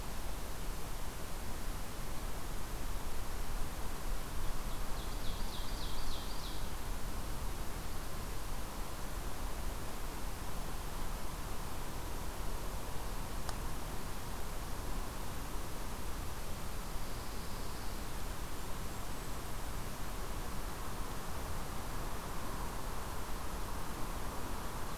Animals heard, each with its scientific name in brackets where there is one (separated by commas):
Golden-crowned Kinglet (Regulus satrapa), Pine Warbler (Setophaga pinus), Ovenbird (Seiurus aurocapilla)